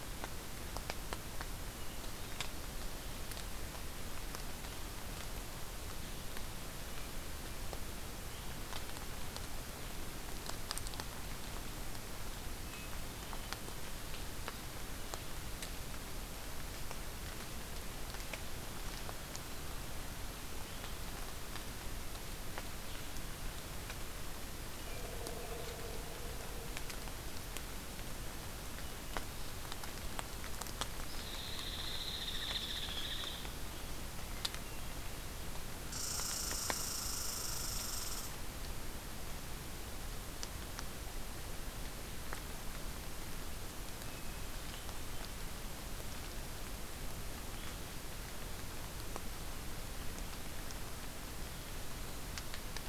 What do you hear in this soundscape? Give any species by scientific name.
Dryobates villosus, Tamiasciurus hudsonicus